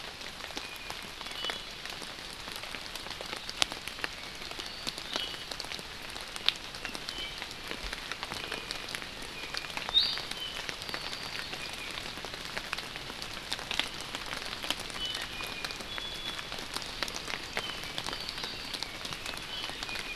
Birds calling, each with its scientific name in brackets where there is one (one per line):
Iiwi (Drepanis coccinea)
Apapane (Himatione sanguinea)